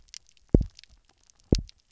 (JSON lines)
{"label": "biophony, double pulse", "recorder": "SoundTrap 300"}